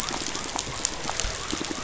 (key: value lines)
label: biophony
recorder: SoundTrap 500